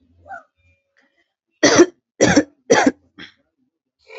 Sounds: Cough